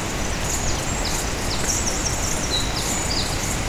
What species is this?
Pholidoptera aptera